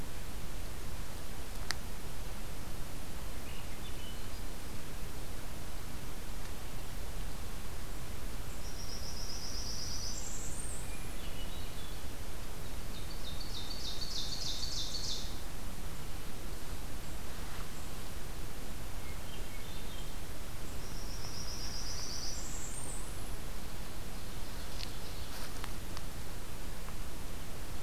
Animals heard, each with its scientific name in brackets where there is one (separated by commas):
Blackburnian Warbler (Setophaga fusca), Swainson's Thrush (Catharus ustulatus), Hermit Thrush (Catharus guttatus), Ovenbird (Seiurus aurocapilla)